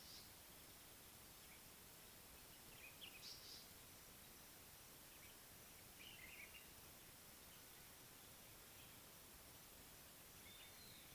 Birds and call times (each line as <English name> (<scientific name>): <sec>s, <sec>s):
African Paradise-Flycatcher (Terpsiphone viridis): 3.2s
Common Bulbul (Pycnonotus barbatus): 6.2s